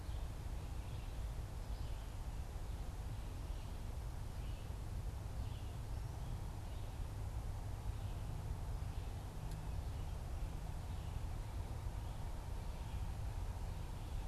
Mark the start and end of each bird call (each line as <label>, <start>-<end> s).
Red-eyed Vireo (Vireo olivaceus), 0.0-14.3 s